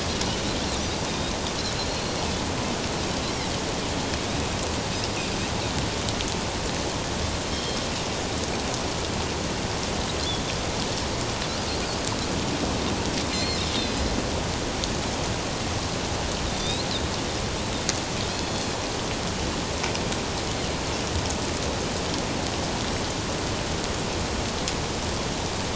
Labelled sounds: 1.1	2.2	Pacific white-sided dolphin, 3.6 to 4.4 kHz
7.5	7.8	Pacific white-sided dolphin, 3.1 to 5.5 kHz
13.3	14.1	Pacific white-sided dolphin, 1.9 to 5.2 kHz
16.5	16.9	Pacific white-sided dolphin, 3.5 to 4.3 kHz
18.2	18.7	Pacific white-sided dolphin, 3.2 to 4.4 kHz

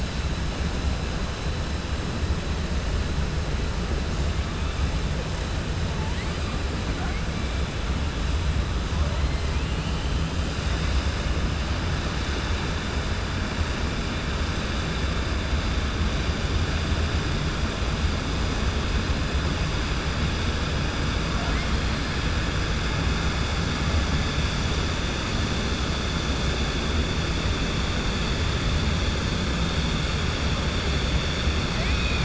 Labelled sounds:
31.7	32.2	killer whale, 1.8 to 3.9 kHz

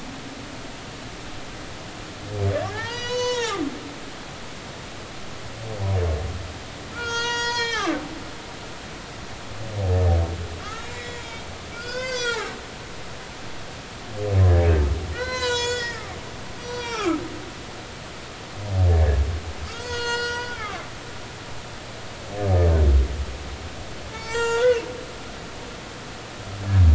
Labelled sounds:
2.6	3.7	humpback whale, 0.80 to 8.0 kHz
6.9	8.0	humpback whale, 0.86 to 8.0 kHz
10.6	11.4	humpback whale, 1.1 to 7.4 kHz
11.7	12.5	humpback whale, 0.80 to 6.8 kHz
15.1	17.2	humpback whale, 0.80 to 7.7 kHz
18.9	20.8	humpback whale, 0.90 to 7.7 kHz
24.1	24.8	humpback whale, 0.83 to 7.7 kHz

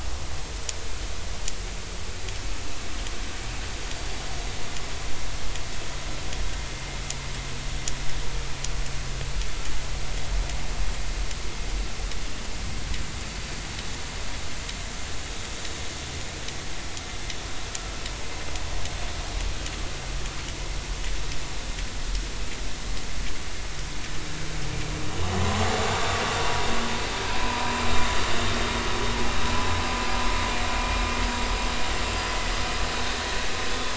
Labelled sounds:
27.4	27.7	vessel noise, 0.93 to 2.6 kHz
33.7	33.9	vessel noise, 3.4 to 3.6 kHz

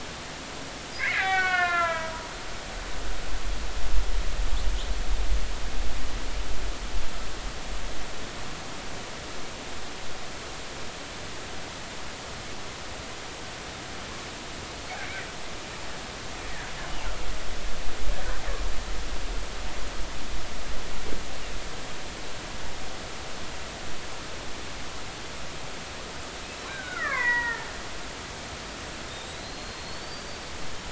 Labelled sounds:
1.0	2.1	killer whale, Bigg's (transient), 0.93 to 4.6 kHz
26.7	27.7	killer whale, Bigg's (transient), 0.86 to 2.4 kHz
29.1	30.4	killer whale, Bigg's (transient), 3.6 to 4.7 kHz

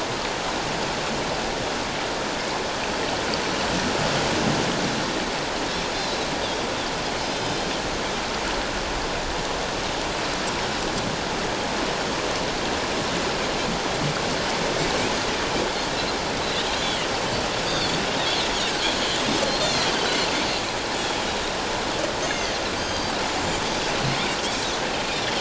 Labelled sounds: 6.0	6.3	Pacific white-sided dolphin, 3.8 to 4.2 kHz
7.2	7.7	Pacific white-sided dolphin, 5.0 to 5.3 kHz
17.6	18.0	Pacific white-sided dolphin, 3.3 to 4.8 kHz
19.5	19.9	Pacific white-sided dolphin, 4.0 to 4.4 kHz
22.2	23.2	Pacific white-sided dolphin, 1.9 to 6.5 kHz
24.4	24.7	Pacific white-sided dolphin, 5.4 to 5.7 kHz

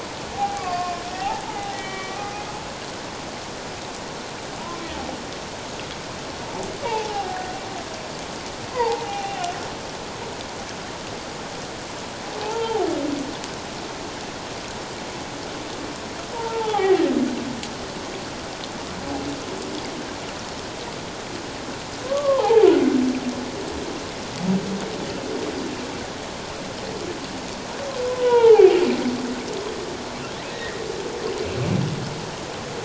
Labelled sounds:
0.4	2.4	humpback whale, 0.78 to 3.1 kHz
6.8	7.5	humpback whale, 0.78 to 1.0 kHz
8.7	9.5	humpback whale, 0.78 to 2.9 kHz
12.4	12.9	humpback whale, 0.78 to 1.4 kHz
16.3	17.0	humpback whale, 0.78 to 1.4 kHz
22.0	22.7	humpback whale, 0.78 to 1.2 kHz
28.1	28.8	humpback whale, 0.78 to 3.4 kHz
30.5	30.8	humpback whale, 1.7 to 2.0 kHz

